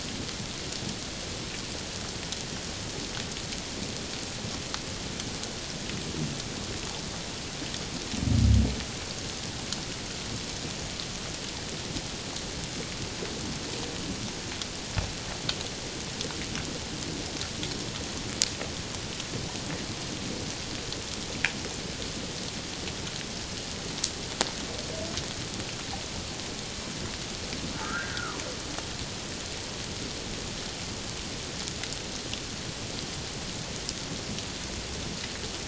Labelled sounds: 27.7	28.4	humpback whale, 0.94 to 1.7 kHz

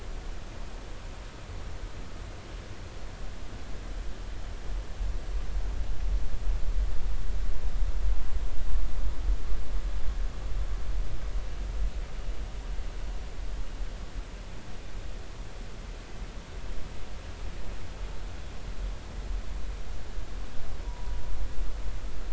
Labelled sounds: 20.8	21.2	humpback whale, 0.90 to 1.0 kHz

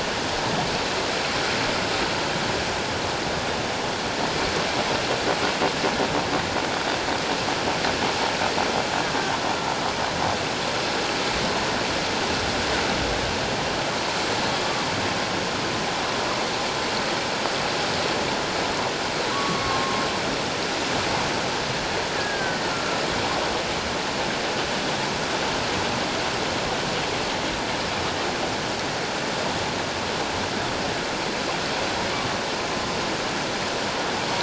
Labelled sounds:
19.3	20.0	humpback whale, 1.0 to 1.2 kHz
22.2	22.6	killer whale, Bigg's (transient), 1.5 to 1.7 kHz

